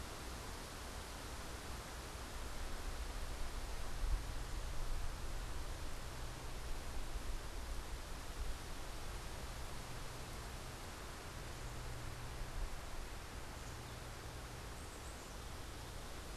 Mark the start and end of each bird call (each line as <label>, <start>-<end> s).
Black-capped Chickadee (Poecile atricapillus), 14.7-15.5 s